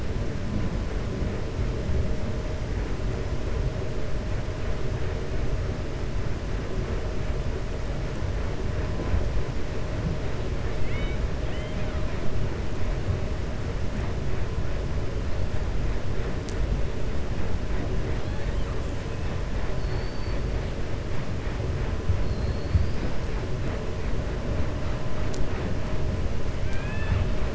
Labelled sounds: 10.7	12.0	killer whale, 1.3 to 3.8 kHz
19.7	20.4	killer whale, 3.6 to 4.6 kHz
22.2	23.1	killer whale, 4.0 to 5.1 kHz

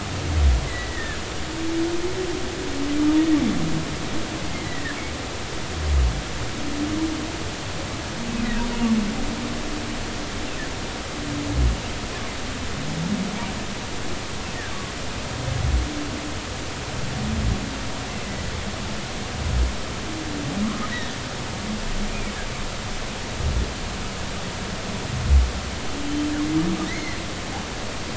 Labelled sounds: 0.7	1.2	humpback whale, 1.6 to 2.1 kHz
4.5	5.0	humpback whale, 1.6 to 2.2 kHz
20.6	20.9	humpback whale, 1.0 to 1.3 kHz
26.9	27.2	humpback whale, 1.9 to 2.2 kHz

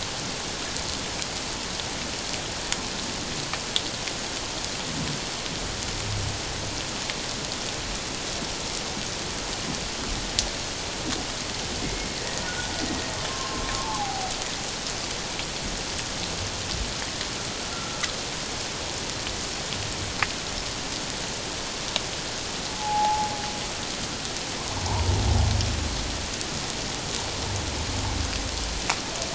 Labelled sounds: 12.2	12.7	humpback whale, 1.4 to 2.0 kHz
13.3	14.3	humpback whale, 0.78 to 1.2 kHz
17.7	18.0	humpback whale, 1.3 to 1.4 kHz
22.7	23.3	humpback whale, 0.78 to 0.91 kHz

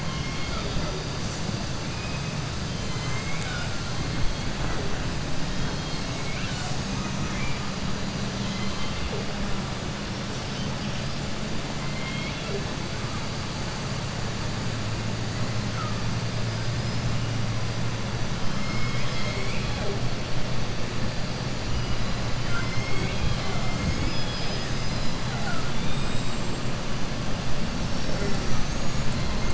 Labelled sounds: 0.0	0.9	killer whale, southern resident, 0.43 to 5.8 kHz
2.7	3.7	killer whale, southern resident, 0.83 to 7.9 kHz
5.5	6.1	killer whale, southern resident, 3.2 to 5.0 kHz
8.4	9.0	killer whale, southern resident, 1.1 to 5.1 kHz
11.8	12.6	killer whale, southern resident, 0.40 to 4.3 kHz
16.5	17.0	killer whale, southern resident, 4.1 to 5.4 kHz
27.8	29.2	killer whale, southern resident, 5.4 to 7.9 kHz

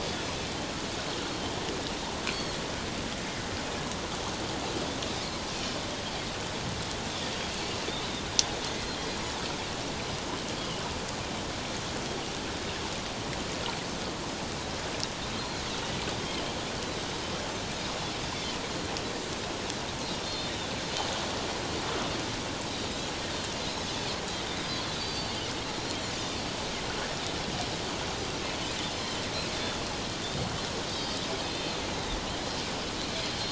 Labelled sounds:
1.1	1.3	Pacific white-sided dolphin, 1.2 to 1.6 kHz
2.3	2.6	Pacific white-sided dolphin, 4.1 to 4.5 kHz
5.5	5.8	Pacific white-sided dolphin, 3.0 to 3.2 kHz
8.8	9.0	Pacific white-sided dolphin, 4.1 to 4.3 kHz
15.4	15.6	Pacific white-sided dolphin, 4.0 to 4.3 kHz
20.2	20.5	Pacific white-sided dolphin, 3.5 to 4.3 kHz
24.9	25.5	Pacific white-sided dolphin, 2.8 to 4.7 kHz
29.6	29.8	Pacific white-sided dolphin, 3.3 to 3.6 kHz
30.9	31.8	Pacific white-sided dolphin, 3.1 to 4.7 kHz

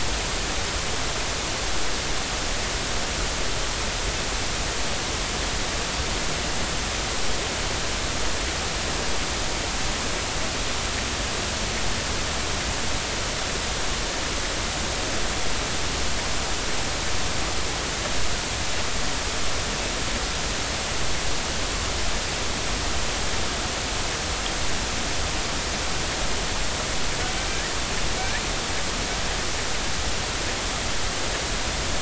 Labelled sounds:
27.5	27.8	killer whale, northern resident, G clan, 1.6 to 2.0 kHz

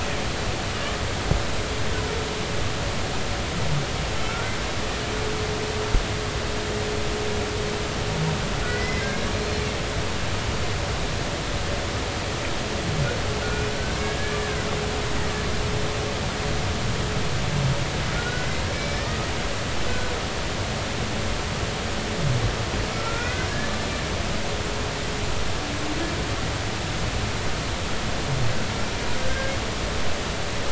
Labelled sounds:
8.7	9.1	humpback whale, 1.9 to 2.2 kHz
9.3	9.6	humpback whale, 4.1 to 4.3 kHz
13.4	13.7	humpback whale, 1.4 to 2.5 kHz
18.1	19.3	humpback whale, 1.2 to 5.3 kHz
22.9	23.8	humpback whale, 1.3 to 2.6 kHz
29.2	29.5	humpback whale, 1.5 to 1.7 kHz

